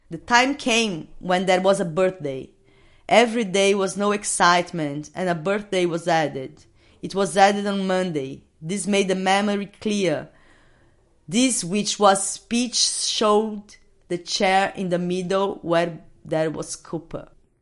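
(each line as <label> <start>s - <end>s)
A person is talking. 0.0s - 17.6s
A woman is speaking. 0.0s - 17.6s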